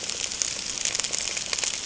{"label": "ambient", "recorder": "HydroMoth"}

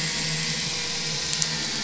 {"label": "anthrophony, boat engine", "recorder": "SoundTrap 500"}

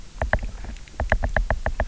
{"label": "biophony, knock", "recorder": "SoundTrap 300"}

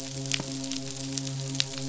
{"label": "biophony, midshipman", "recorder": "SoundTrap 500"}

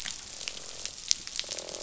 {"label": "biophony, croak", "recorder": "SoundTrap 500"}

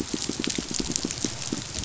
{"label": "biophony, pulse", "recorder": "SoundTrap 500"}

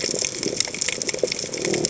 {"label": "biophony", "recorder": "HydroMoth"}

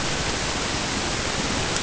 {"label": "ambient", "recorder": "HydroMoth"}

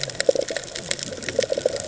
{"label": "ambient", "recorder": "HydroMoth"}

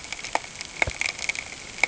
{"label": "ambient", "recorder": "HydroMoth"}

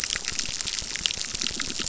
{"label": "biophony, crackle", "recorder": "SoundTrap 600"}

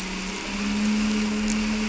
{"label": "anthrophony, boat engine", "recorder": "SoundTrap 300"}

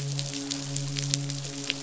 {"label": "biophony, midshipman", "recorder": "SoundTrap 500"}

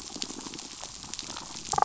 {"label": "biophony, damselfish", "recorder": "SoundTrap 500"}
{"label": "biophony", "recorder": "SoundTrap 500"}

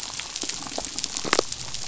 {"label": "biophony, damselfish", "recorder": "SoundTrap 500"}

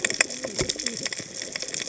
{"label": "biophony, cascading saw", "recorder": "HydroMoth"}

